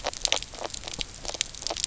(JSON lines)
{"label": "biophony, knock croak", "recorder": "SoundTrap 300"}